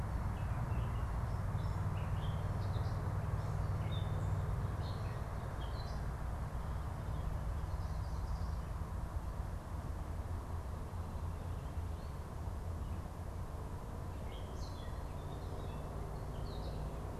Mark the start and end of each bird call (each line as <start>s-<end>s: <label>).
0.2s-6.1s: Gray Catbird (Dumetella carolinensis)
7.5s-8.8s: unidentified bird
14.2s-16.9s: Gray Catbird (Dumetella carolinensis)